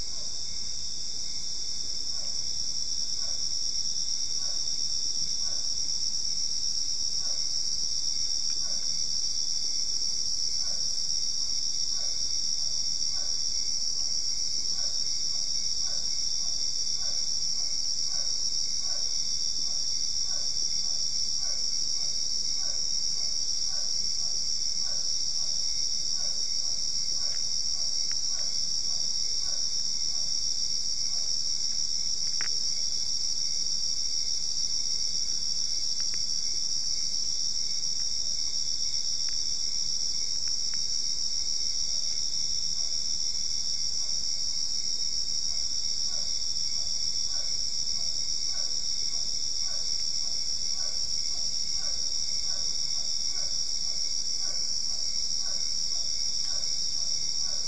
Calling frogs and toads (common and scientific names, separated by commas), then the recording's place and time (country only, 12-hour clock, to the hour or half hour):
Physalaemus cuvieri
Brazil, 10pm